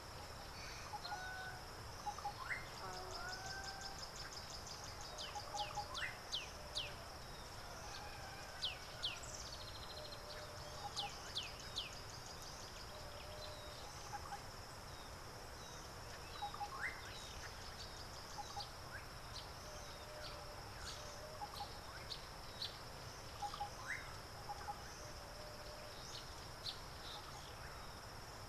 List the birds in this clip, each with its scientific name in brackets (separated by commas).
Tawny-flanked Prinia (Prinia subflava), Black-backed Puffback (Dryoscopus cubla)